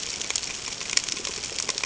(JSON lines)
{"label": "ambient", "recorder": "HydroMoth"}